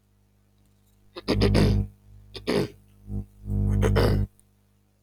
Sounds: Throat clearing